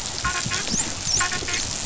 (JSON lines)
{"label": "biophony, dolphin", "recorder": "SoundTrap 500"}